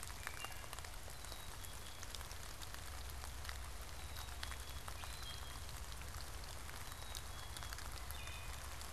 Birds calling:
Black-capped Chickadee (Poecile atricapillus), Wood Thrush (Hylocichla mustelina)

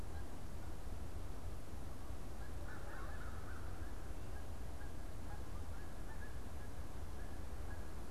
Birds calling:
American Crow (Corvus brachyrhynchos), unidentified bird

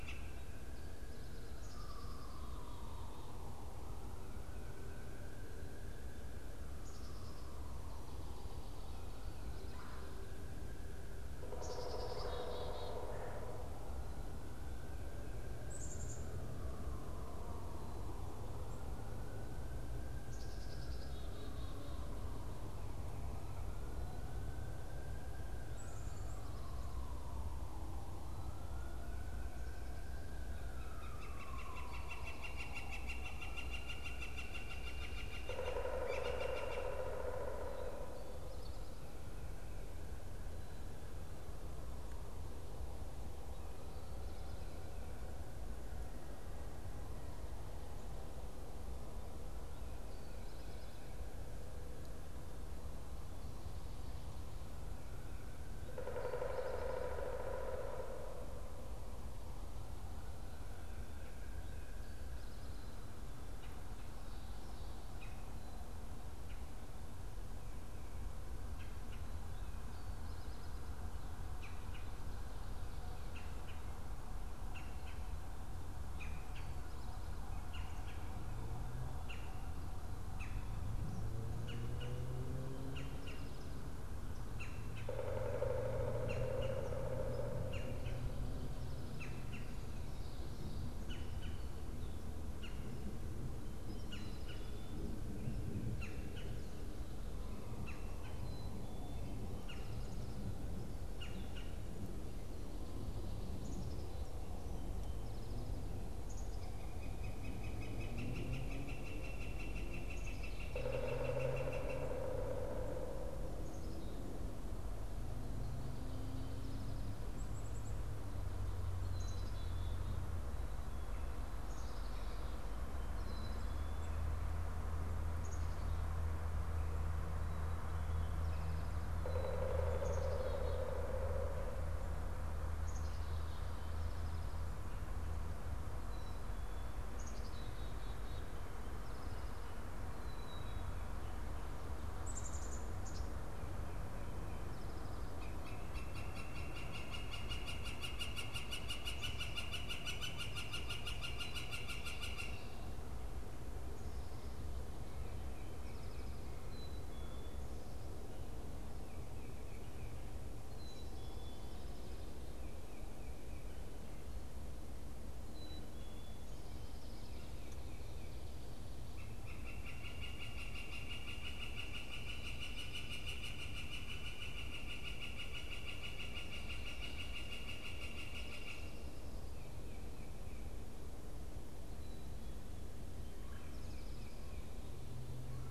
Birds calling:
unidentified bird, Red-bellied Woodpecker (Melanerpes carolinus), Black-capped Chickadee (Poecile atricapillus), Pileated Woodpecker (Dryocopus pileatus), Northern Flicker (Colaptes auratus), Eastern Towhee (Pipilo erythrophthalmus)

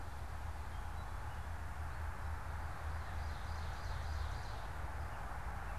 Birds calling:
Ovenbird (Seiurus aurocapilla), Northern Cardinal (Cardinalis cardinalis)

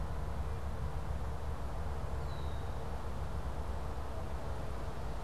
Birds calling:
Red-winged Blackbird (Agelaius phoeniceus)

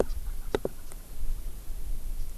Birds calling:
Japanese Bush Warbler (Horornis diphone)

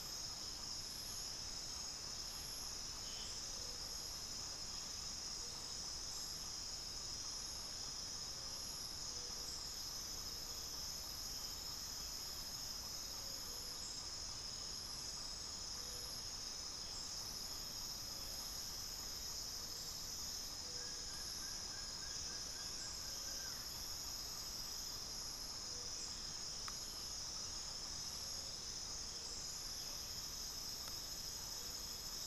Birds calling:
unidentified bird, Plain-winged Antshrike (Thamnophilus schistaceus)

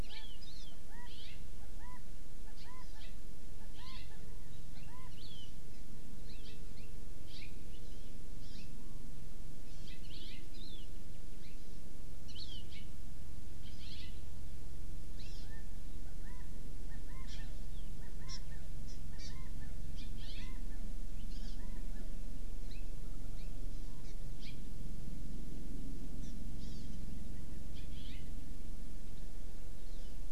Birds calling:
Chinese Hwamei (Garrulax canorus), House Finch (Haemorhous mexicanus), Hawaii Amakihi (Chlorodrepanis virens)

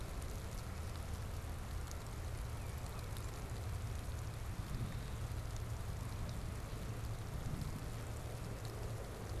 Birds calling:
Tufted Titmouse (Baeolophus bicolor)

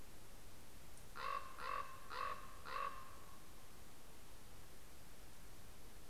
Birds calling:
Common Raven (Corvus corax)

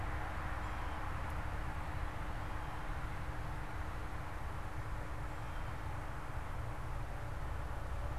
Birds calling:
Blue Jay (Cyanocitta cristata)

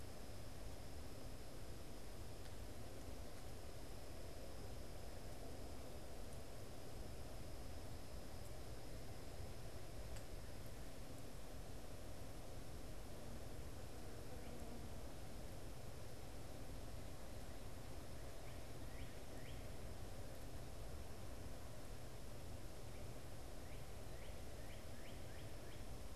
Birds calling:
Northern Cardinal (Cardinalis cardinalis)

